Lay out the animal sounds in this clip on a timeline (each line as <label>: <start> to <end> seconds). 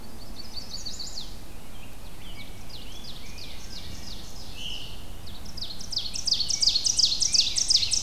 Chestnut-sided Warbler (Setophaga pensylvanica): 0.0 to 1.3 seconds
Rose-breasted Grosbeak (Pheucticus ludovicianus): 1.5 to 4.1 seconds
Ovenbird (Seiurus aurocapilla): 1.9 to 8.0 seconds
Wood Thrush (Hylocichla mustelina): 3.6 to 4.1 seconds
Veery (Catharus fuscescens): 4.4 to 5.1 seconds
Rose-breasted Grosbeak (Pheucticus ludovicianus): 5.8 to 8.0 seconds